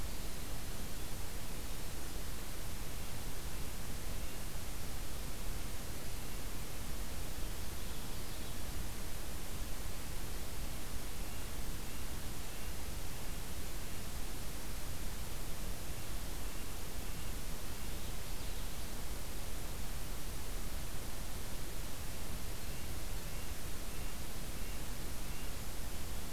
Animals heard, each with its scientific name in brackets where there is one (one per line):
Common Yellowthroat (Geothlypis trichas)
Red-breasted Nuthatch (Sitta canadensis)